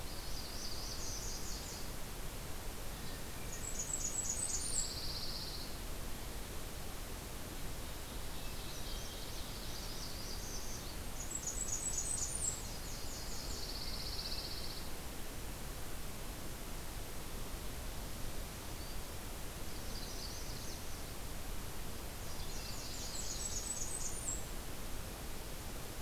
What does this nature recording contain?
Nashville Warbler, Blackburnian Warbler, Pine Warbler, Magnolia Warbler, Northern Parula, Black-throated Green Warbler